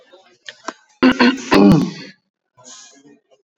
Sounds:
Throat clearing